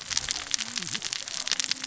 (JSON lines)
{"label": "biophony, cascading saw", "recorder": "SoundTrap 600 or HydroMoth"}